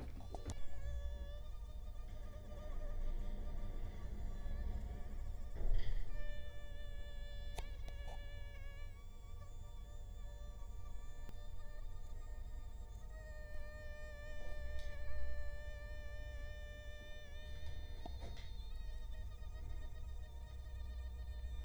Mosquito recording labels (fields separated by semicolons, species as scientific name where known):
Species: Culex quinquefasciatus; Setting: cup